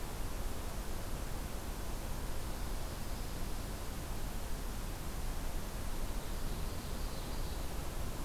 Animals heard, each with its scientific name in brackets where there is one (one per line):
Ovenbird (Seiurus aurocapilla)